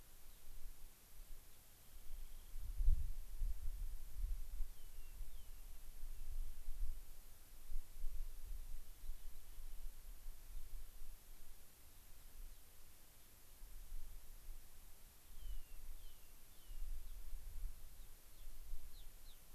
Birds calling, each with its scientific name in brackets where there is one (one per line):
Rock Wren (Salpinctes obsoletus)
unidentified bird
Gray-crowned Rosy-Finch (Leucosticte tephrocotis)